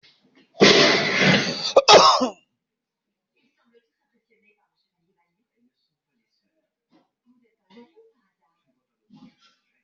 {"expert_labels": [{"quality": "poor", "cough_type": "unknown", "dyspnea": false, "wheezing": false, "stridor": false, "choking": false, "congestion": false, "nothing": true, "diagnosis": "healthy cough", "severity": "pseudocough/healthy cough"}, {"quality": "ok", "cough_type": "dry", "dyspnea": false, "wheezing": false, "stridor": false, "choking": false, "congestion": false, "nothing": true, "diagnosis": "upper respiratory tract infection", "severity": "unknown"}, {"quality": "good", "cough_type": "dry", "dyspnea": false, "wheezing": false, "stridor": false, "choking": false, "congestion": false, "nothing": true, "diagnosis": "obstructive lung disease", "severity": "mild"}, {"quality": "poor", "cough_type": "dry", "dyspnea": false, "wheezing": false, "stridor": false, "choking": false, "congestion": false, "nothing": false, "severity": "unknown"}], "age": 42, "gender": "male", "respiratory_condition": false, "fever_muscle_pain": false, "status": "healthy"}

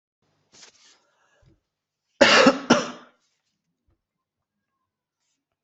{"expert_labels": [{"quality": "ok", "cough_type": "dry", "dyspnea": false, "wheezing": false, "stridor": false, "choking": false, "congestion": false, "nothing": true, "diagnosis": "healthy cough", "severity": "pseudocough/healthy cough"}], "age": 40, "gender": "male", "respiratory_condition": false, "fever_muscle_pain": false, "status": "healthy"}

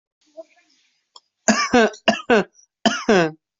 {"expert_labels": [{"quality": "good", "cough_type": "unknown", "dyspnea": false, "wheezing": false, "stridor": false, "choking": false, "congestion": false, "nothing": true, "diagnosis": "healthy cough", "severity": "pseudocough/healthy cough"}], "age": 23, "gender": "female", "respiratory_condition": false, "fever_muscle_pain": false, "status": "healthy"}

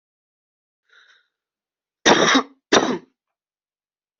{"expert_labels": [{"quality": "good", "cough_type": "wet", "dyspnea": false, "wheezing": false, "stridor": false, "choking": false, "congestion": false, "nothing": true, "diagnosis": "healthy cough", "severity": "pseudocough/healthy cough"}], "age": 19, "gender": "male", "respiratory_condition": true, "fever_muscle_pain": false, "status": "COVID-19"}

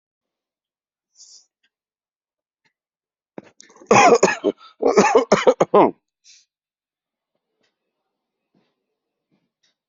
{"expert_labels": [{"quality": "good", "cough_type": "dry", "dyspnea": false, "wheezing": false, "stridor": false, "choking": false, "congestion": false, "nothing": true, "diagnosis": "upper respiratory tract infection", "severity": "mild"}], "age": 45, "gender": "female", "respiratory_condition": true, "fever_muscle_pain": false, "status": "symptomatic"}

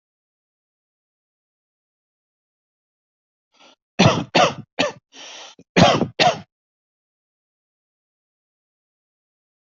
{"expert_labels": [{"quality": "good", "cough_type": "dry", "dyspnea": true, "wheezing": false, "stridor": false, "choking": false, "congestion": false, "nothing": false, "diagnosis": "COVID-19", "severity": "mild"}], "age": 31, "gender": "male", "respiratory_condition": false, "fever_muscle_pain": false, "status": "COVID-19"}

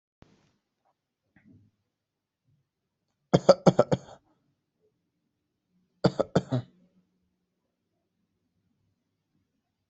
{"expert_labels": [{"quality": "good", "cough_type": "dry", "dyspnea": false, "wheezing": false, "stridor": false, "choking": false, "congestion": false, "nothing": true, "diagnosis": "healthy cough", "severity": "pseudocough/healthy cough"}]}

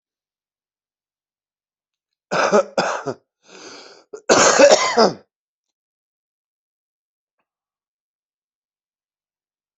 {"expert_labels": [{"quality": "good", "cough_type": "dry", "dyspnea": false, "wheezing": false, "stridor": false, "choking": false, "congestion": false, "nothing": true, "diagnosis": "healthy cough", "severity": "pseudocough/healthy cough"}], "age": 42, "gender": "male", "respiratory_condition": false, "fever_muscle_pain": false, "status": "COVID-19"}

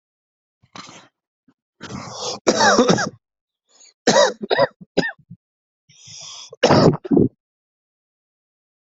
{"expert_labels": [{"quality": "ok", "cough_type": "dry", "dyspnea": true, "wheezing": false, "stridor": false, "choking": false, "congestion": false, "nothing": false, "diagnosis": "COVID-19", "severity": "severe"}]}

